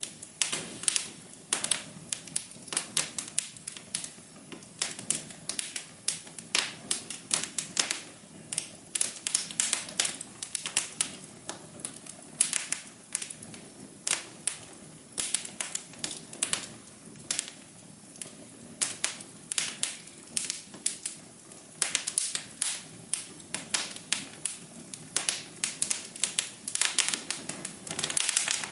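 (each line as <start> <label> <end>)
0.0 Flames crackle repeatedly inside a fireplace. 28.7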